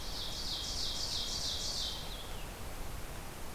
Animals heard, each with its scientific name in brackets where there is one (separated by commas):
Blue-headed Vireo (Vireo solitarius), Ovenbird (Seiurus aurocapilla)